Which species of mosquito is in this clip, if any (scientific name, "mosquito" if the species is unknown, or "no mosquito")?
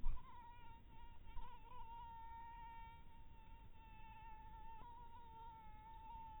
mosquito